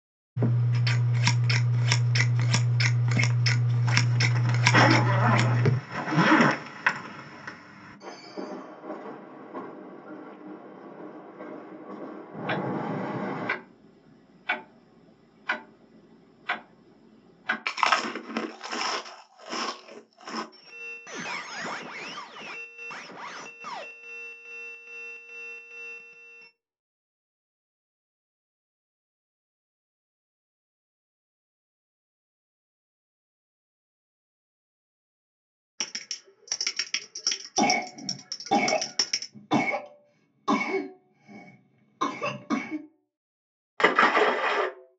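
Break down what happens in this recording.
At 0.4 seconds, the sound of scissors can be heard. Over it, at 3.9 seconds, the sound of a zipper is heard. Then at 8.0 seconds, a train is audible. While that goes on, at 12.5 seconds, you can hear a clock. Next, at 17.6 seconds, someone chews. Afterwards, at 20.5 seconds, squeaking can be heard. Later, at 35.8 seconds, the sound of a computer keyboard can be heard. Over it, at 37.6 seconds, someone coughs. Finally, at 43.8 seconds, you can hear splashing.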